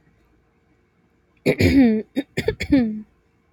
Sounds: Throat clearing